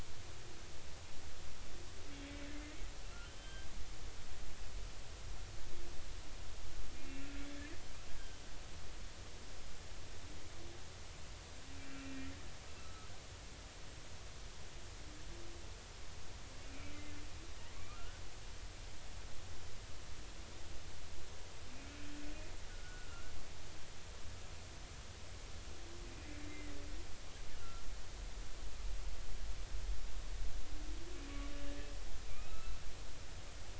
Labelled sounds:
2.2	2.5	humpback whale, 2.2 to 2.3 kHz
3.2	3.7	humpback whale, 1.5 to 3.2 kHz
7.0	7.3	humpback whale, 2.1 to 2.8 kHz
8.2	8.4	humpback whale, 3.0 to 3.2 kHz
12.0	12.3	humpback whale, 2.3 to 2.5 kHz
12.8	13.1	humpback whale, 1.2 to 1.3 kHz
16.6	17.0	humpback whale, 2.2 to 2.5 kHz
17.9	18.2	humpback whale, 1.2 to 1.6 kHz
22.7	23.3	humpback whale, 1.2 to 1.6 kHz
26.5	26.7	humpback whale, 1.9 to 2.1 kHz
27.5	27.8	humpback whale, 1.3 to 1.5 kHz
32.3	32.8	humpback whale, 1.2 to 2.7 kHz

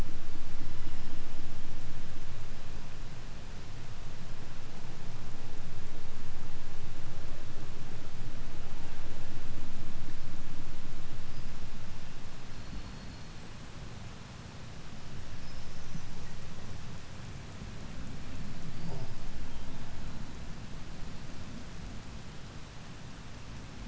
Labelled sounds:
0.5	1.9	killer whale, 2.5 to 5.6 kHz
11.3	11.9	killer whale, 4.6 to 5.3 kHz
12.5	13.5	killer whale, 3.9 to 8.0 kHz

